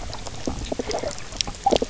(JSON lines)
{"label": "biophony, knock croak", "recorder": "SoundTrap 300"}